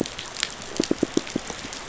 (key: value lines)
label: biophony, pulse
recorder: SoundTrap 500